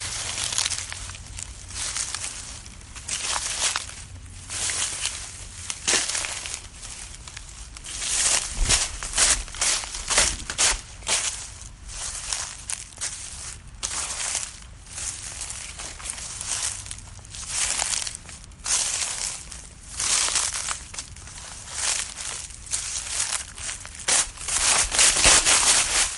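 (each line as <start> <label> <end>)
0.0 Footsteps walking on grass. 26.2
7.7 Loud rhythmic footsteps walking on grass. 11.9
23.9 Loud rhythmic footsteps walking on grass. 26.2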